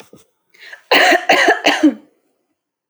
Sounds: Cough